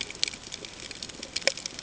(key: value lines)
label: ambient
recorder: HydroMoth